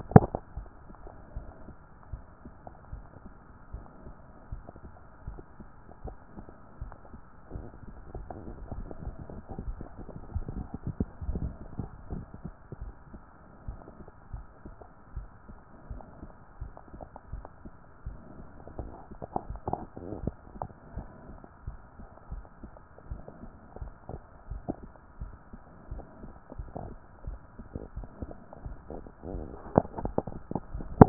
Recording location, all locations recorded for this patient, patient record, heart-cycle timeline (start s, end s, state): mitral valve (MV)
pulmonary valve (PV)+tricuspid valve (TV)+mitral valve (MV)
#Age: nan
#Sex: Female
#Height: nan
#Weight: nan
#Pregnancy status: True
#Murmur: Absent
#Murmur locations: nan
#Most audible location: nan
#Systolic murmur timing: nan
#Systolic murmur shape: nan
#Systolic murmur grading: nan
#Systolic murmur pitch: nan
#Systolic murmur quality: nan
#Diastolic murmur timing: nan
#Diastolic murmur shape: nan
#Diastolic murmur grading: nan
#Diastolic murmur pitch: nan
#Diastolic murmur quality: nan
#Outcome: Normal
#Campaign: 2014 screening campaign
0.00	0.46	unannotated
0.46	0.56	diastole
0.56	0.66	S1
0.66	0.84	systole
0.84	0.94	S2
0.94	1.34	diastole
1.34	1.46	S1
1.46	1.66	systole
1.66	1.74	S2
1.74	2.10	diastole
2.10	2.22	S1
2.22	2.44	systole
2.44	2.52	S2
2.52	2.92	diastole
2.92	3.04	S1
3.04	3.24	systole
3.24	3.34	S2
3.34	3.72	diastole
3.72	3.84	S1
3.84	4.04	systole
4.04	4.14	S2
4.14	4.50	diastole
4.50	4.62	S1
4.62	4.82	systole
4.82	4.92	S2
4.92	5.26	diastole
5.26	5.38	S1
5.38	5.58	systole
5.58	5.68	S2
5.68	6.04	diastole
6.04	6.16	S1
6.16	6.36	systole
6.36	6.46	S2
6.46	6.80	diastole
6.80	6.92	S1
6.92	7.12	systole
7.12	7.22	S2
7.22	7.54	diastole
7.54	7.66	S1
7.66	7.84	systole
7.84	7.96	S2
7.96	8.27	diastole
8.27	31.09	unannotated